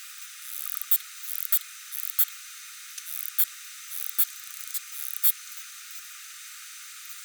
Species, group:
Poecilimon nobilis
Orthoptera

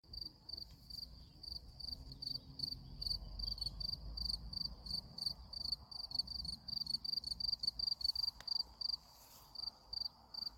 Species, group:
Gryllus campestris
Orthoptera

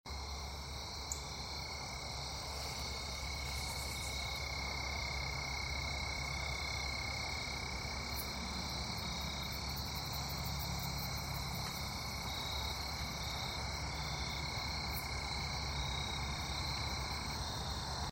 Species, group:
Oecanthus latipennis
Orthoptera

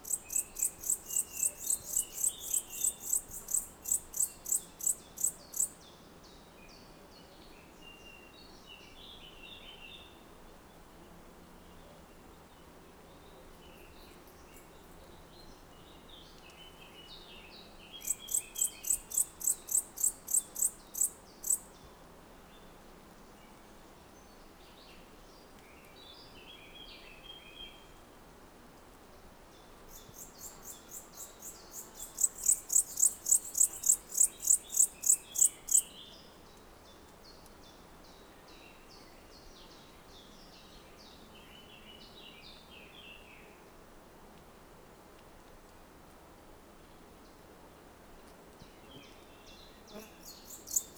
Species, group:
Pholidoptera aptera
Orthoptera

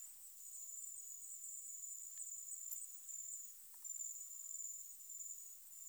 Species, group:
Helicocercus triguttatus
Orthoptera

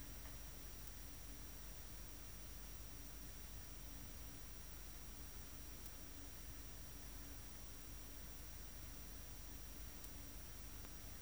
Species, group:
Poecilimon superbus
Orthoptera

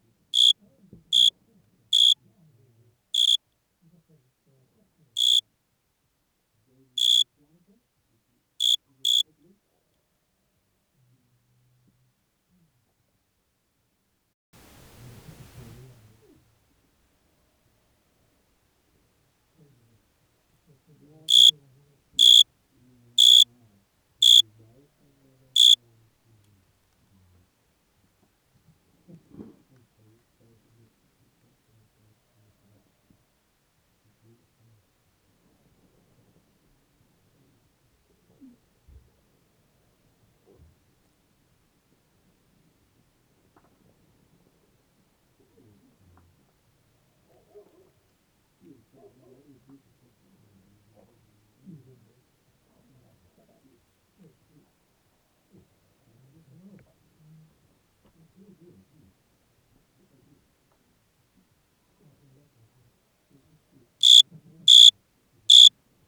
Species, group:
Oecanthus pellucens
Orthoptera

